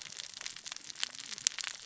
{"label": "biophony, cascading saw", "recorder": "SoundTrap 600 or HydroMoth"}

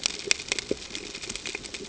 {"label": "ambient", "recorder": "HydroMoth"}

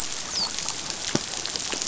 {"label": "biophony, dolphin", "recorder": "SoundTrap 500"}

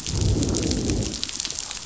{"label": "biophony, growl", "recorder": "SoundTrap 500"}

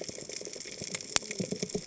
{"label": "biophony, cascading saw", "recorder": "HydroMoth"}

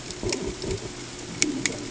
{"label": "ambient", "recorder": "HydroMoth"}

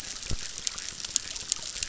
{"label": "biophony, chorus", "recorder": "SoundTrap 600"}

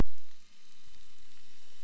{"label": "anthrophony, boat engine", "recorder": "SoundTrap 300"}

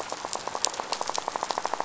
{"label": "biophony, rattle", "recorder": "SoundTrap 500"}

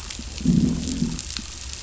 {"label": "biophony, growl", "recorder": "SoundTrap 500"}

